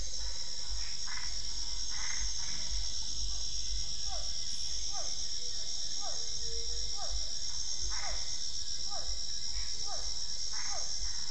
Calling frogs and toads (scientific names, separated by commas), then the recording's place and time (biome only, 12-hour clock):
Boana albopunctata, Physalaemus cuvieri, Pithecopus azureus
Cerrado, 7:00pm